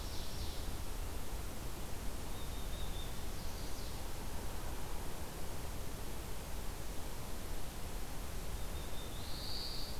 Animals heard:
Black-throated Blue Warbler (Setophaga caerulescens), Ovenbird (Seiurus aurocapilla), Chestnut-sided Warbler (Setophaga pensylvanica)

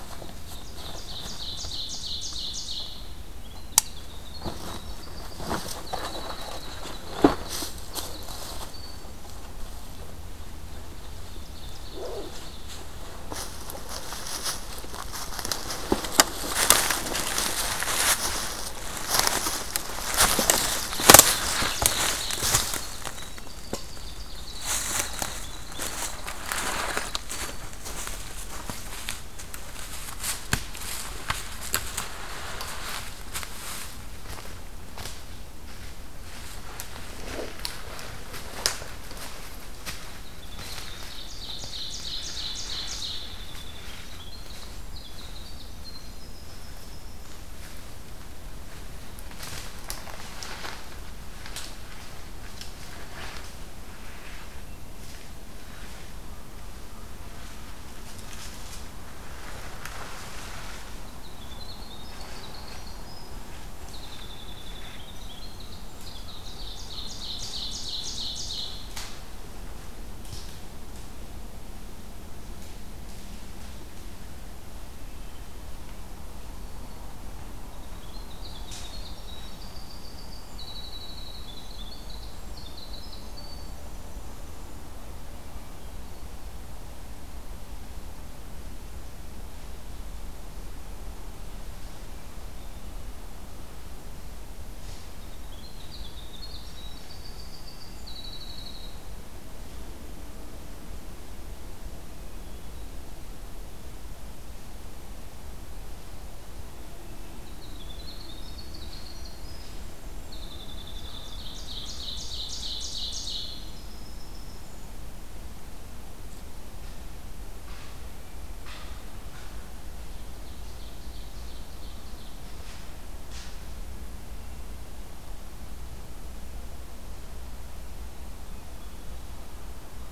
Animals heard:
Winter Wren (Troglodytes hiemalis), Ovenbird (Seiurus aurocapilla)

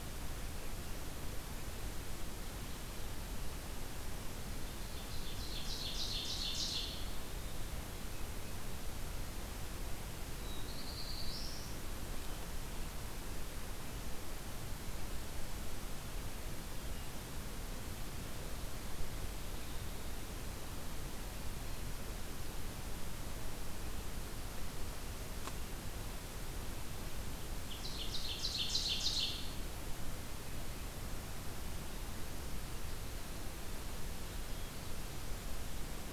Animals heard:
Black-throated Blue Warbler (Setophaga caerulescens), Ovenbird (Seiurus aurocapilla)

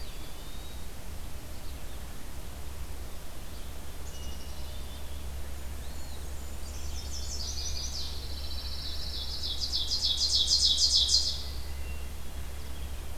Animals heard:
Red-eyed Vireo (Vireo olivaceus), Black-capped Chickadee (Poecile atricapillus), Blackburnian Warbler (Setophaga fusca), Ovenbird (Seiurus aurocapilla), Hermit Thrush (Catharus guttatus), Pine Warbler (Setophaga pinus), Eastern Wood-Pewee (Contopus virens), Chestnut-sided Warbler (Setophaga pensylvanica)

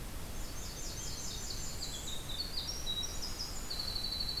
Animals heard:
Blackburnian Warbler (Setophaga fusca), Winter Wren (Troglodytes hiemalis)

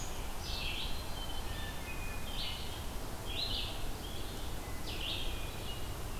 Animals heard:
Red-eyed Vireo (Vireo olivaceus), Blue-headed Vireo (Vireo solitarius), Hermit Thrush (Catharus guttatus)

